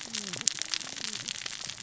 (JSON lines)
{"label": "biophony, cascading saw", "recorder": "SoundTrap 600 or HydroMoth"}